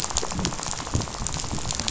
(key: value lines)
label: biophony, rattle
recorder: SoundTrap 500